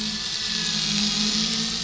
{"label": "anthrophony, boat engine", "recorder": "SoundTrap 500"}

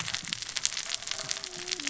{"label": "biophony, cascading saw", "recorder": "SoundTrap 600 or HydroMoth"}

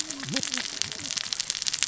{"label": "biophony, cascading saw", "recorder": "SoundTrap 600 or HydroMoth"}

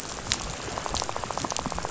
{"label": "biophony, rattle", "recorder": "SoundTrap 500"}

